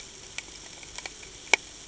{"label": "ambient", "recorder": "HydroMoth"}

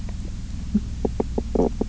{"label": "biophony, knock croak", "recorder": "SoundTrap 300"}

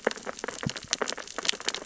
{"label": "biophony, sea urchins (Echinidae)", "recorder": "SoundTrap 600 or HydroMoth"}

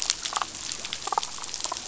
{"label": "biophony, damselfish", "recorder": "SoundTrap 500"}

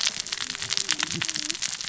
{"label": "biophony, cascading saw", "recorder": "SoundTrap 600 or HydroMoth"}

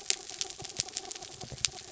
{"label": "anthrophony, mechanical", "recorder": "SoundTrap 300"}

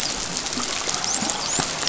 {"label": "biophony, dolphin", "recorder": "SoundTrap 500"}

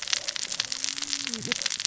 {"label": "biophony, cascading saw", "recorder": "SoundTrap 600 or HydroMoth"}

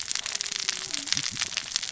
{"label": "biophony, cascading saw", "recorder": "SoundTrap 600 or HydroMoth"}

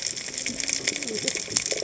{"label": "biophony, cascading saw", "recorder": "HydroMoth"}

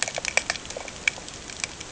{"label": "ambient", "recorder": "HydroMoth"}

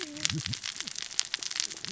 {"label": "biophony, cascading saw", "recorder": "SoundTrap 600 or HydroMoth"}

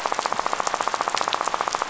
{"label": "biophony, rattle", "recorder": "SoundTrap 500"}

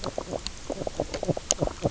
{"label": "biophony, knock croak", "recorder": "SoundTrap 300"}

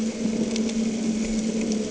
{"label": "anthrophony, boat engine", "recorder": "HydroMoth"}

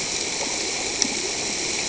{"label": "ambient", "recorder": "HydroMoth"}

